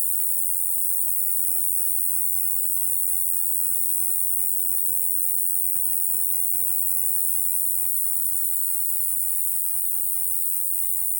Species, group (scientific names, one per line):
Ruspolia nitidula
Orthoptera